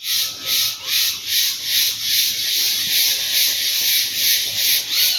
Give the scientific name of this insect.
Dorisiana noriegai